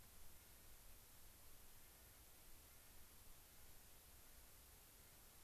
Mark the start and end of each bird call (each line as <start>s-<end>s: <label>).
0.3s-5.4s: Clark's Nutcracker (Nucifraga columbiana)